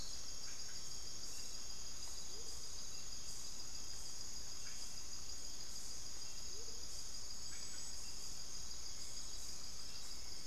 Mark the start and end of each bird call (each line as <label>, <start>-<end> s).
Amazonian Motmot (Momotus momota), 0.0-10.5 s
unidentified bird, 0.0-10.5 s
Hauxwell's Thrush (Turdus hauxwelli), 8.3-10.5 s